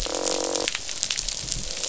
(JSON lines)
{"label": "biophony, croak", "recorder": "SoundTrap 500"}